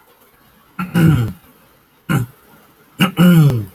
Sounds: Throat clearing